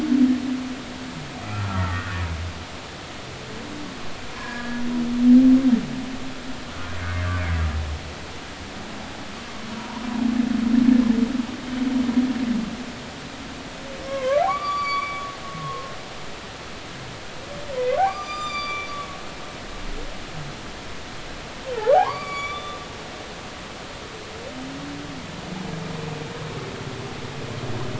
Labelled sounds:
1.4	2.2	humpback whale, 1.1 to 2.0 kHz
4.4	4.8	humpback whale, 1.6 to 1.8 kHz
14.1	15.9	humpback whale, 0.96 to 4.7 kHz
18.0	18.9	humpback whale, 0.93 to 7.3 kHz
21.8	22.8	humpback whale, 0.80 to 7.0 kHz

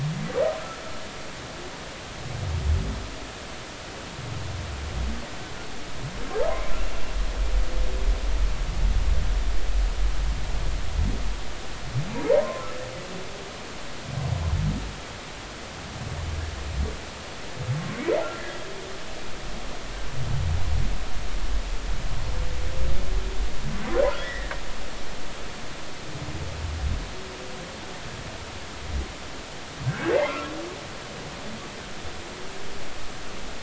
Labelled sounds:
12.4	12.7	humpback whale, 0.90 to 1.1 kHz
24.2	24.5	humpback whale, 1.6 to 2.0 kHz
29.9	30.5	humpback whale, 0.80 to 2.2 kHz

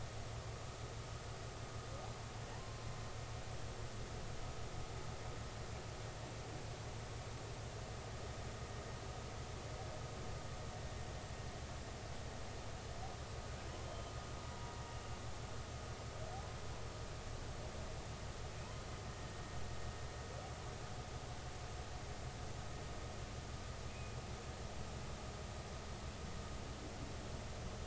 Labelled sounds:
2.5	2.8	humpback whale, 0.80 to 1.1 kHz
13.8	14.7	humpback whale, 0.90 to 3.2 kHz
23.9	24.2	humpback whale, 2.3 to 2.6 kHz

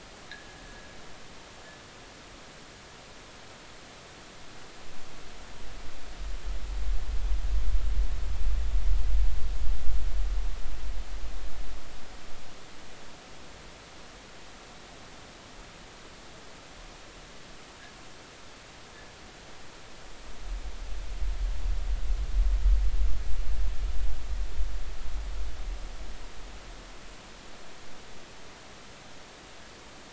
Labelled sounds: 0.3	0.6	fishing gear, 1.6 to 2.0 kHz

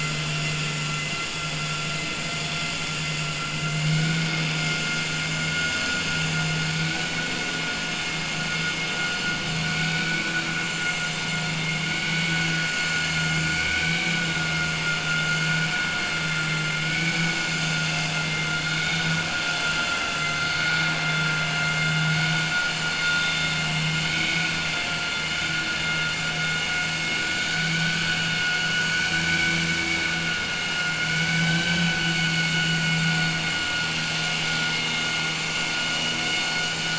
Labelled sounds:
18.7	19.1	vessel noise, 1.5 to 4.1 kHz
24.0	24.5	vessel noise, 1.5 to 4.4 kHz

